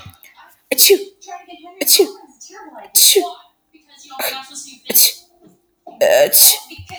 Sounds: Sneeze